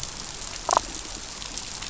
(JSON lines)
{"label": "biophony, damselfish", "recorder": "SoundTrap 500"}